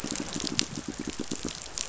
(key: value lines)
label: biophony, pulse
recorder: SoundTrap 500